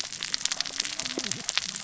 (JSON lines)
{"label": "biophony, cascading saw", "recorder": "SoundTrap 600 or HydroMoth"}